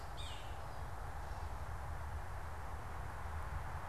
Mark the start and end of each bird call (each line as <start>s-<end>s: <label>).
0.0s-0.6s: Yellow-bellied Sapsucker (Sphyrapicus varius)